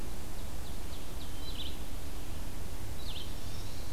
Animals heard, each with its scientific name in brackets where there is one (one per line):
Chestnut-sided Warbler (Setophaga pensylvanica)
Ovenbird (Seiurus aurocapilla)
Red-eyed Vireo (Vireo olivaceus)